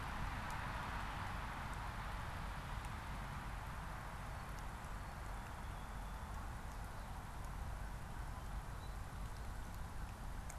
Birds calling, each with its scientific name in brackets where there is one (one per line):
Song Sparrow (Melospiza melodia)